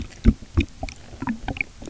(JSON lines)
{"label": "geophony, waves", "recorder": "SoundTrap 300"}